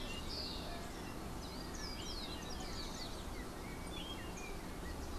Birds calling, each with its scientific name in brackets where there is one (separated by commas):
Yellow-backed Oriole (Icterus chrysater)